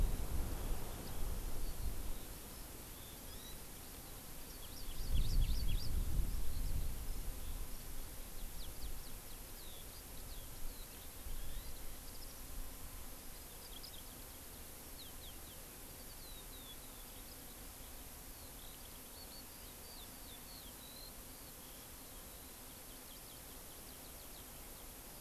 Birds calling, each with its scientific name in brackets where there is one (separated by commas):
Eurasian Skylark (Alauda arvensis), Hawaii Amakihi (Chlorodrepanis virens)